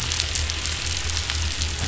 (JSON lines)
{"label": "anthrophony, boat engine", "recorder": "SoundTrap 500"}